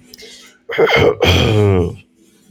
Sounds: Throat clearing